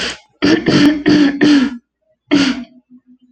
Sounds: Throat clearing